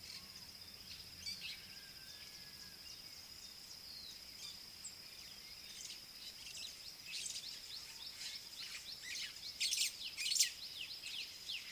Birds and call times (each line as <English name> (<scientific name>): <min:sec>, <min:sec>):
White-browed Sparrow-Weaver (Plocepasser mahali): 0:09.8